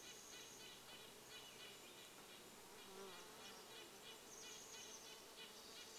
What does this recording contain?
Chestnut-backed Chickadee call, Brown Creeper call, Red-breasted Nuthatch song, insect buzz, Pacific Wren song